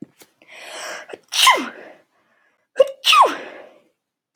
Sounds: Sneeze